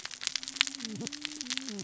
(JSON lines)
{"label": "biophony, cascading saw", "recorder": "SoundTrap 600 or HydroMoth"}